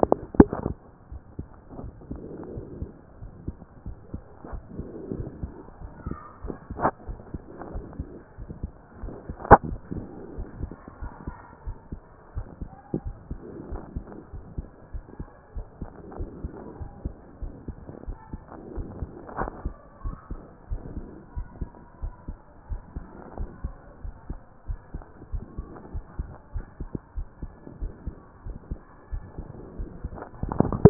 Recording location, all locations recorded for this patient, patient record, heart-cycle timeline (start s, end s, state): aortic valve (AV)
aortic valve (AV)+pulmonary valve (PV)+tricuspid valve (TV)+mitral valve (MV)
#Age: Child
#Sex: Male
#Height: 142.0 cm
#Weight: 36.2 kg
#Pregnancy status: False
#Murmur: Absent
#Murmur locations: nan
#Most audible location: nan
#Systolic murmur timing: nan
#Systolic murmur shape: nan
#Systolic murmur grading: nan
#Systolic murmur pitch: nan
#Systolic murmur quality: nan
#Diastolic murmur timing: nan
#Diastolic murmur shape: nan
#Diastolic murmur grading: nan
#Diastolic murmur pitch: nan
#Diastolic murmur quality: nan
#Outcome: Abnormal
#Campaign: 2014 screening campaign
0.00	10.18	unannotated
10.18	10.36	diastole
10.36	10.48	S1
10.48	10.60	systole
10.60	10.72	S2
10.72	11.00	diastole
11.00	11.12	S1
11.12	11.26	systole
11.26	11.36	S2
11.36	11.66	diastole
11.66	11.76	S1
11.76	11.92	systole
11.92	12.00	S2
12.00	12.36	diastole
12.36	12.46	S1
12.46	12.60	systole
12.60	12.70	S2
12.70	13.02	diastole
13.02	13.14	S1
13.14	13.30	systole
13.30	13.38	S2
13.38	13.70	diastole
13.70	13.82	S1
13.82	13.94	systole
13.94	14.04	S2
14.04	14.34	diastole
14.34	14.44	S1
14.44	14.56	systole
14.56	14.66	S2
14.66	14.92	diastole
14.92	15.04	S1
15.04	15.18	systole
15.18	15.28	S2
15.28	15.54	diastole
15.54	15.66	S1
15.66	15.80	systole
15.80	15.90	S2
15.90	16.18	diastole
16.18	16.30	S1
16.30	16.42	systole
16.42	16.52	S2
16.52	16.80	diastole
16.80	16.90	S1
16.90	17.04	systole
17.04	17.14	S2
17.14	17.42	diastole
17.42	17.52	S1
17.52	17.68	systole
17.68	17.76	S2
17.76	18.06	diastole
18.06	18.18	S1
18.18	18.32	systole
18.32	18.42	S2
18.42	18.74	diastole
18.74	18.88	S1
18.88	19.00	systole
19.00	19.10	S2
19.10	19.40	diastole
19.40	19.52	S1
19.52	19.64	systole
19.64	19.74	S2
19.74	20.04	diastole
20.04	20.16	S1
20.16	20.30	systole
20.30	20.40	S2
20.40	20.70	diastole
20.70	20.82	S1
20.82	20.96	systole
20.96	21.06	S2
21.06	21.36	diastole
21.36	21.48	S1
21.48	21.60	systole
21.60	21.70	S2
21.70	22.02	diastole
22.02	22.14	S1
22.14	22.28	systole
22.28	22.36	S2
22.36	22.70	diastole
22.70	22.82	S1
22.82	22.96	systole
22.96	23.04	S2
23.04	23.38	diastole
23.38	23.50	S1
23.50	23.64	systole
23.64	23.74	S2
23.74	24.04	diastole
24.04	24.14	S1
24.14	24.28	systole
24.28	24.40	S2
24.40	24.68	diastole
24.68	24.80	S1
24.80	24.94	systole
24.94	25.04	S2
25.04	25.32	diastole
25.32	25.44	S1
25.44	25.58	systole
25.58	25.66	S2
25.66	25.94	diastole
25.94	26.04	S1
26.04	26.18	systole
26.18	26.28	S2
26.28	26.54	diastole
26.54	26.66	S1
26.66	26.80	systole
26.80	26.90	S2
26.90	27.16	diastole
27.16	27.28	S1
27.28	27.42	systole
27.42	27.50	S2
27.50	27.80	diastole
27.80	27.92	S1
27.92	28.06	systole
28.06	28.14	S2
28.14	28.46	diastole
28.46	28.58	S1
28.58	28.70	systole
28.70	28.80	S2
28.80	29.12	diastole
29.12	29.24	S1
29.24	29.38	systole
29.38	29.48	S2
29.48	29.78	diastole
29.78	30.90	unannotated